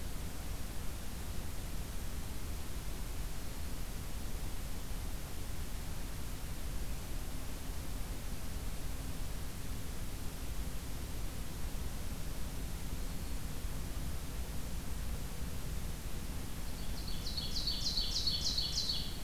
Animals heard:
Ovenbird (Seiurus aurocapilla), Black-throated Green Warbler (Setophaga virens)

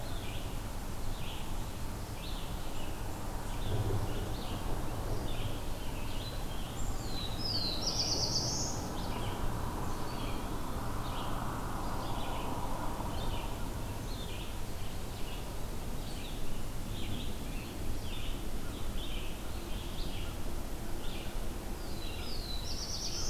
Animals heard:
Red-eyed Vireo (Vireo olivaceus), Scarlet Tanager (Piranga olivacea), Black-throated Blue Warbler (Setophaga caerulescens)

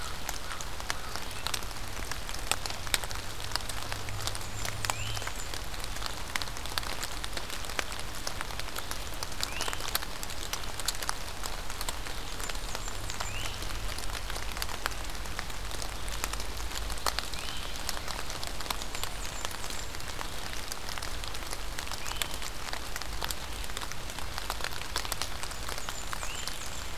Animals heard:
Blackburnian Warbler (Setophaga fusca), American Crow (Corvus brachyrhynchos), Ovenbird (Seiurus aurocapilla), Great Crested Flycatcher (Myiarchus crinitus)

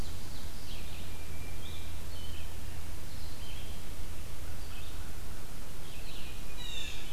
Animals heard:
Red-eyed Vireo (Vireo olivaceus), Blue Jay (Cyanocitta cristata), Tufted Titmouse (Baeolophus bicolor), Ovenbird (Seiurus aurocapilla)

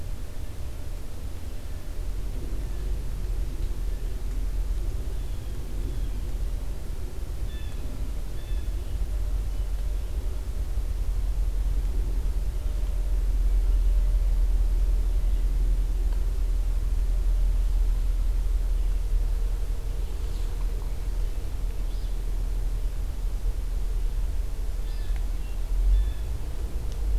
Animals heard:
Alder Flycatcher (Empidonax alnorum), Blue Jay (Cyanocitta cristata)

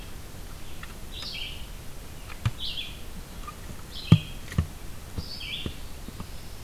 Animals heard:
Red-eyed Vireo (Vireo olivaceus), Black-throated Blue Warbler (Setophaga caerulescens)

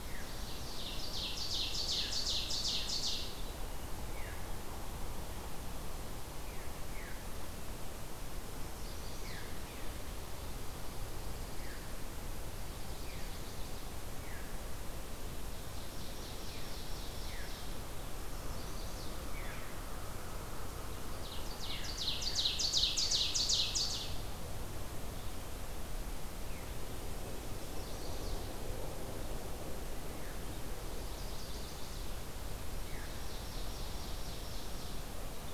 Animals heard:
Chestnut-sided Warbler (Setophaga pensylvanica), Veery (Catharus fuscescens), Ovenbird (Seiurus aurocapilla), Pine Warbler (Setophaga pinus)

